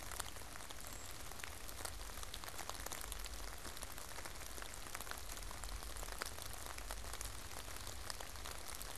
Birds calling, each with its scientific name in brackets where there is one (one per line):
Brown Creeper (Certhia americana)